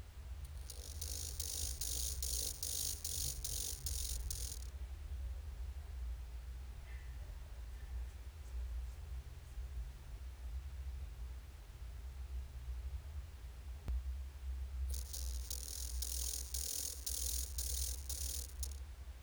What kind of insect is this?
orthopteran